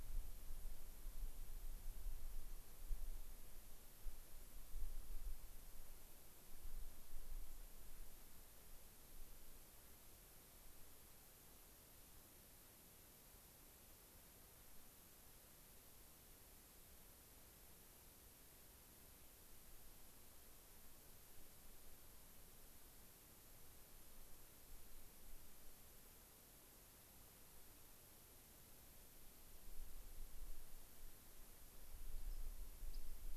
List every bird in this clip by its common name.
Rock Wren, White-crowned Sparrow